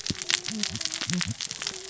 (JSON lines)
{"label": "biophony, cascading saw", "recorder": "SoundTrap 600 or HydroMoth"}